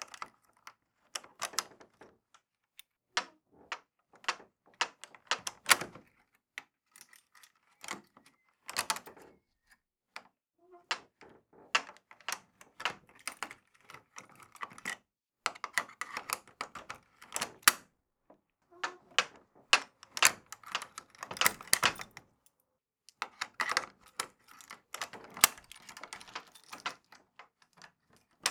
Are dogs barking in the background?
no